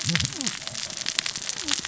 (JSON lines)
{"label": "biophony, cascading saw", "recorder": "SoundTrap 600 or HydroMoth"}